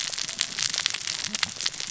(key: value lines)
label: biophony, cascading saw
recorder: SoundTrap 600 or HydroMoth